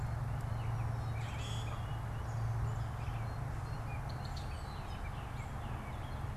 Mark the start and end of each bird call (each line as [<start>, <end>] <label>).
[0.00, 6.37] Gray Catbird (Dumetella carolinensis)
[1.10, 2.00] Common Grackle (Quiscalus quiscula)
[4.00, 4.60] Red-winged Blackbird (Agelaius phoeniceus)